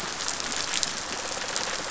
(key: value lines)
label: biophony, rattle response
recorder: SoundTrap 500